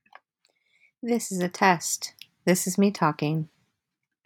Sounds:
Cough